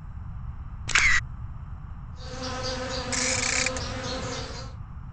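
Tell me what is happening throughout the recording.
From 2.09 to 4.81 seconds, an insect can be heard, fading in and fading out. At 0.84 seconds, there is the sound of a single-lens reflex camera. Then, at 3.09 seconds, you can hear a ratchet.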